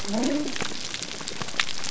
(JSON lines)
{"label": "biophony", "recorder": "SoundTrap 300"}